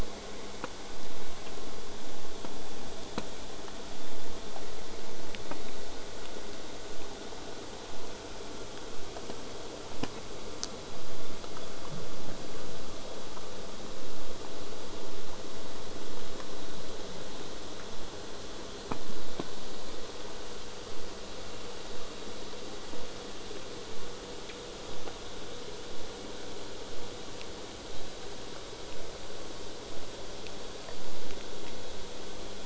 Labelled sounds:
20.9	25.9	vessel noise, 0 to 8.0 kHz

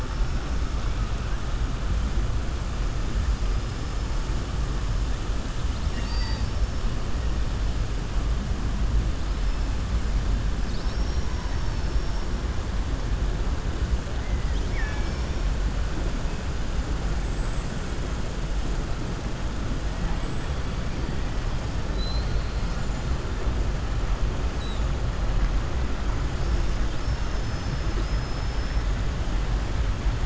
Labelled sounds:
14.2	15.4	killer whale, southern resident, 0.83 to 5.7 kHz
21.8	22.8	killer whale, southern resident, 3.9 to 5.3 kHz
26.9	28.8	killer whale, southern resident, 3.9 to 6.3 kHz

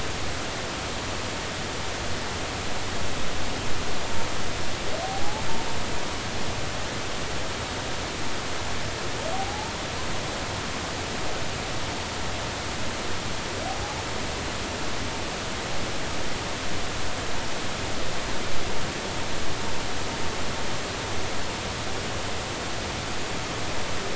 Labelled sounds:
9.3	9.7	humpback whale, 0.80 to 0.96 kHz

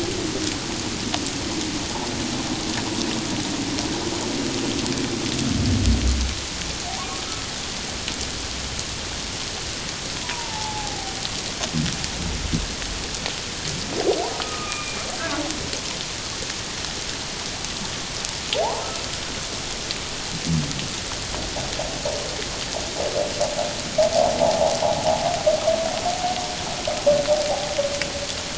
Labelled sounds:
6.9	7.5	humpback whale, 0.78 to 1.4 kHz
10.2	11.2	humpback whale, 0.78 to 1.0 kHz
14.3	15.0	humpback whale, 1.2 to 2.5 kHz
18.6	18.9	humpback whale, 0.78 to 1.1 kHz

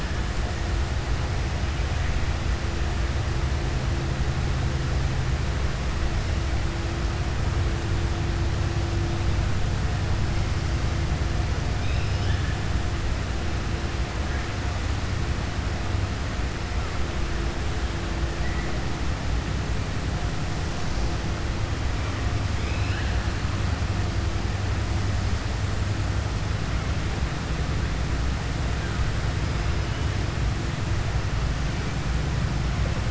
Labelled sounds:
22.5	23.2	killer whale, southern resident, 1.5 to 4.1 kHz

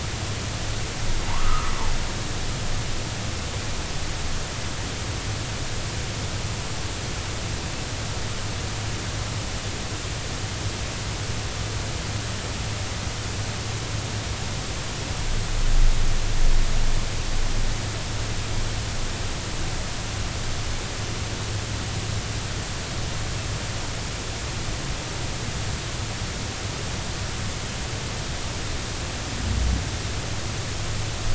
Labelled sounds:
1.3	1.7	humpback whale, 0.83 to 1.4 kHz

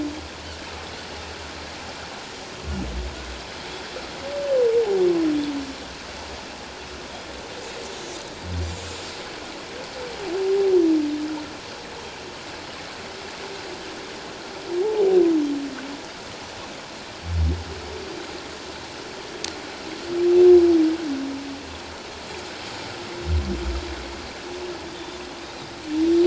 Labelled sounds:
24.9	25.2	Pacific white-sided dolphin, 3.4 to 3.6 kHz

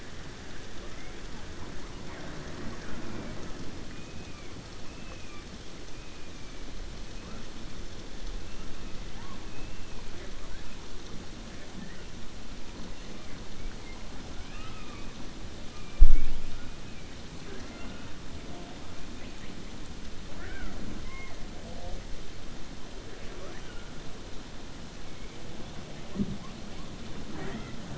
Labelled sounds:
14.3	15.1	killer whale, 1.1 to 3.9 kHz
17.4	18.1	killer whale, 0.69 to 3.6 kHz

